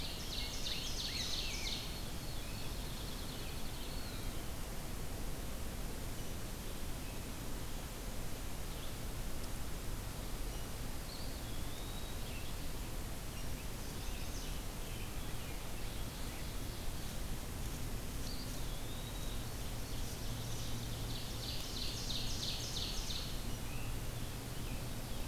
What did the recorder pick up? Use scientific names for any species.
Seiurus aurocapilla, Pheucticus ludovicianus, Spizella pusilla, Contopus virens, Vireo olivaceus, Setophaga pensylvanica